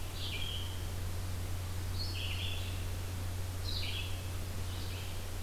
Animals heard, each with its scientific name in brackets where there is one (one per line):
Red-eyed Vireo (Vireo olivaceus)